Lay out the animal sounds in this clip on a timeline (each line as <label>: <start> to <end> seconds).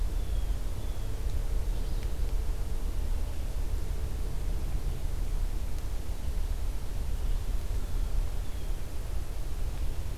Blue Jay (Cyanocitta cristata): 0.0 to 1.3 seconds
Alder Flycatcher (Empidonax alnorum): 1.5 to 2.2 seconds
Blue Jay (Cyanocitta cristata): 7.6 to 8.9 seconds